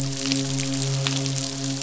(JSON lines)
{"label": "biophony, midshipman", "recorder": "SoundTrap 500"}